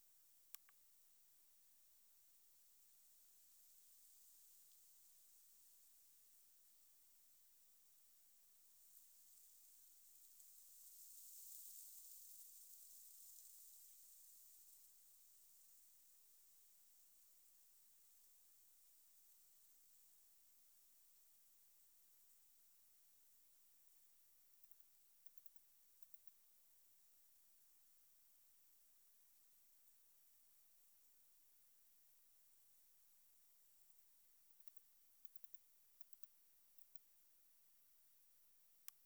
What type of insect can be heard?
orthopteran